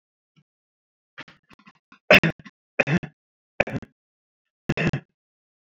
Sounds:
Cough